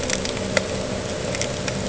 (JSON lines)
{"label": "ambient", "recorder": "HydroMoth"}